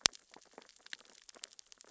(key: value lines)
label: biophony, sea urchins (Echinidae)
recorder: SoundTrap 600 or HydroMoth